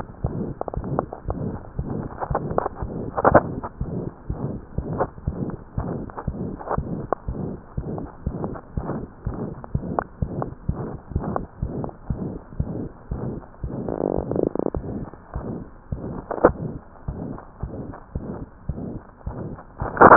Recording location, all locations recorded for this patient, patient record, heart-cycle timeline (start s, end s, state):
mitral valve (MV)
aortic valve (AV)+pulmonary valve (PV)+tricuspid valve (TV)+mitral valve (MV)
#Age: Child
#Sex: Female
#Height: 84.0 cm
#Weight: 10.9 kg
#Pregnancy status: False
#Murmur: Present
#Murmur locations: aortic valve (AV)+mitral valve (MV)+pulmonary valve (PV)+tricuspid valve (TV)
#Most audible location: aortic valve (AV)
#Systolic murmur timing: Holosystolic
#Systolic murmur shape: Diamond
#Systolic murmur grading: III/VI or higher
#Systolic murmur pitch: High
#Systolic murmur quality: Harsh
#Diastolic murmur timing: nan
#Diastolic murmur shape: nan
#Diastolic murmur grading: nan
#Diastolic murmur pitch: nan
#Diastolic murmur quality: nan
#Outcome: Abnormal
#Campaign: 2015 screening campaign
0.00	4.12	unannotated
4.12	4.28	diastole
4.28	4.36	S1
4.36	4.49	systole
4.49	4.59	S2
4.59	4.76	diastole
4.76	4.85	S1
4.85	4.95	systole
4.95	5.04	S2
5.04	5.22	diastole
5.22	5.35	S1
5.35	5.48	systole
5.48	5.57	S2
5.57	5.76	diastole
5.76	5.87	S1
5.87	5.99	systole
5.99	6.06	S2
6.06	6.26	diastole
6.26	6.35	S1
6.35	6.47	systole
6.47	6.58	S2
6.58	6.76	diastole
6.76	6.84	S1
6.84	6.99	systole
6.99	7.10	S2
7.10	7.24	diastole
7.24	7.38	S1
7.38	7.49	systole
7.49	7.59	S2
7.59	7.75	diastole
7.75	7.86	S1
7.86	8.00	systole
8.00	8.08	S2
8.08	8.26	diastole
8.26	8.36	S1
8.36	8.50	systole
8.50	8.62	S2
8.62	8.75	diastole
8.75	8.84	S1
8.84	8.96	systole
8.96	9.07	S2
9.07	9.22	diastole
9.22	9.35	S1
9.35	9.47	systole
9.47	9.58	S2
9.58	9.70	diastole
9.70	9.81	S1
9.81	9.93	systole
9.93	10.04	S2
10.04	10.18	diastole
10.18	10.28	S1
10.28	10.41	systole
10.41	10.55	S2
10.55	10.66	diastole
10.66	10.75	S1
10.75	10.89	systole
10.89	11.01	S2
11.01	11.12	diastole
11.12	11.23	S1
11.23	11.35	systole
11.35	11.49	S2
11.49	11.60	diastole
11.60	11.70	S1
11.70	11.82	systole
11.82	11.94	S2
11.94	12.06	diastole
12.06	12.16	S1
12.16	12.30	systole
12.30	12.43	S2
12.43	12.56	diastole
12.56	12.68	S1
12.68	12.82	systole
12.82	12.92	S2
12.92	13.06	diastole
13.06	13.19	S1
13.19	13.33	systole
13.33	13.43	S2
13.43	13.64	diastole
13.64	20.16	unannotated